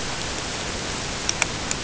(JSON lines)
{"label": "ambient", "recorder": "HydroMoth"}